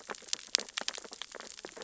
{"label": "biophony, sea urchins (Echinidae)", "recorder": "SoundTrap 600 or HydroMoth"}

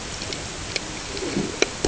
{"label": "ambient", "recorder": "HydroMoth"}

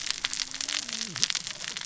{"label": "biophony, cascading saw", "recorder": "SoundTrap 600 or HydroMoth"}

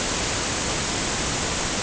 {"label": "ambient", "recorder": "HydroMoth"}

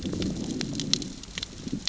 {"label": "biophony, growl", "recorder": "SoundTrap 600 or HydroMoth"}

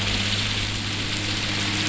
{"label": "anthrophony, boat engine", "recorder": "SoundTrap 500"}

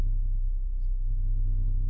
{"label": "anthrophony, boat engine", "recorder": "SoundTrap 300"}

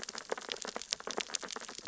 {"label": "biophony, sea urchins (Echinidae)", "recorder": "SoundTrap 600 or HydroMoth"}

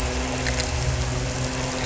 {"label": "anthrophony, boat engine", "recorder": "SoundTrap 300"}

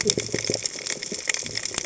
{"label": "biophony, cascading saw", "recorder": "HydroMoth"}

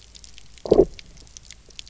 {"label": "biophony, low growl", "recorder": "SoundTrap 300"}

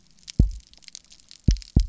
{"label": "biophony, double pulse", "recorder": "SoundTrap 300"}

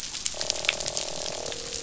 {"label": "biophony, croak", "recorder": "SoundTrap 500"}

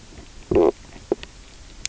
{"label": "biophony, low growl", "recorder": "SoundTrap 300"}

